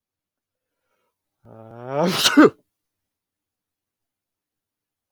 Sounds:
Sneeze